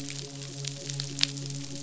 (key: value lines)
label: biophony, midshipman
recorder: SoundTrap 500